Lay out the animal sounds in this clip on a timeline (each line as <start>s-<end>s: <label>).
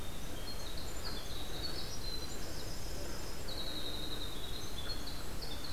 0.0s-5.7s: Winter Wren (Troglodytes hiemalis)